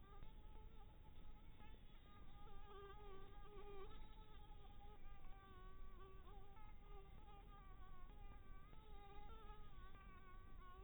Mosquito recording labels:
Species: Anopheles dirus; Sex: female; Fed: unfed; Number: one; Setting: cup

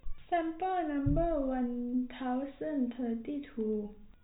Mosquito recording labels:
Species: no mosquito; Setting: cup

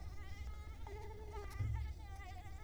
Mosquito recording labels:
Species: Culex quinquefasciatus; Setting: cup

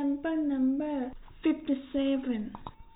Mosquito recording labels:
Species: no mosquito; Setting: cup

